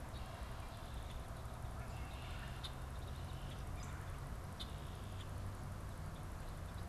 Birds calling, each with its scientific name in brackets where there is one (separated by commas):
Red-bellied Woodpecker (Melanerpes carolinus), Red-winged Blackbird (Agelaius phoeniceus)